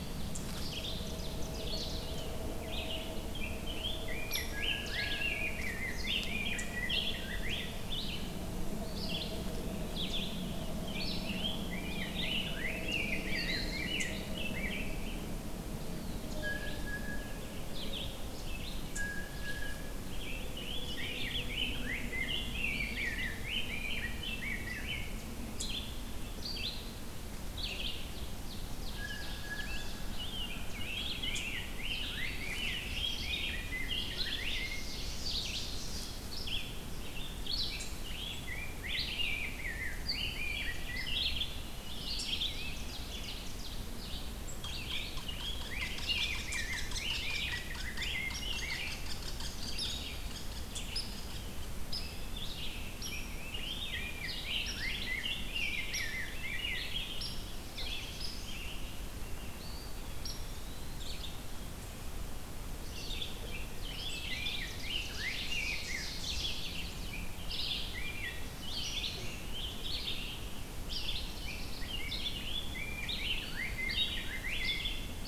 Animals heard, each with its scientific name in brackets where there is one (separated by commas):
Blue Jay (Cyanocitta cristata), Red-eyed Vireo (Vireo olivaceus), Hairy Woodpecker (Dryobates villosus), Rose-breasted Grosbeak (Pheucticus ludovicianus), Black-throated Blue Warbler (Setophaga caerulescens), Ovenbird (Seiurus aurocapilla), unknown mammal, Eastern Wood-Pewee (Contopus virens)